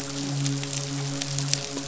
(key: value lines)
label: biophony, midshipman
recorder: SoundTrap 500